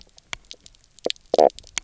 {"label": "biophony, knock croak", "recorder": "SoundTrap 300"}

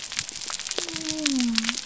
{"label": "biophony", "recorder": "SoundTrap 300"}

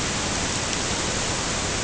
{"label": "ambient", "recorder": "HydroMoth"}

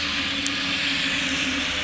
{"label": "anthrophony, boat engine", "recorder": "SoundTrap 500"}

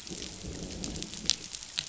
{"label": "biophony, growl", "recorder": "SoundTrap 500"}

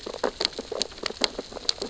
{"label": "biophony, sea urchins (Echinidae)", "recorder": "SoundTrap 600 or HydroMoth"}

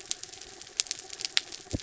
{"label": "anthrophony, mechanical", "recorder": "SoundTrap 300"}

